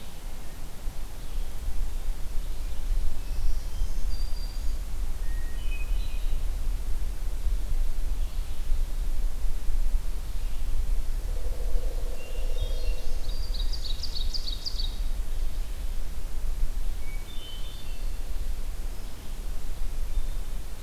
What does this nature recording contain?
Red-eyed Vireo, Black-throated Green Warbler, Hermit Thrush, Ovenbird